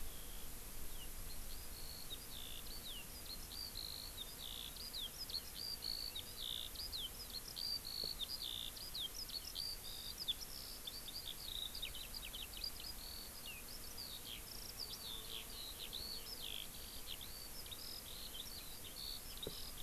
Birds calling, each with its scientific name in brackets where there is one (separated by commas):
Eurasian Skylark (Alauda arvensis)